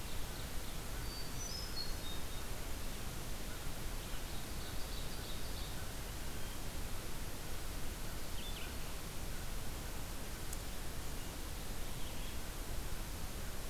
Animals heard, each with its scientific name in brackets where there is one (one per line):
Hermit Thrush (Catharus guttatus)
Blue-headed Vireo (Vireo solitarius)
Ovenbird (Seiurus aurocapilla)